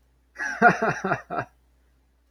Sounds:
Laughter